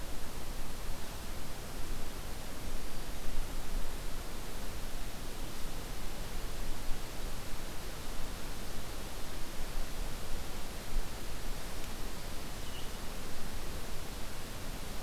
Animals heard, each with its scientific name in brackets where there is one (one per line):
Red-eyed Vireo (Vireo olivaceus)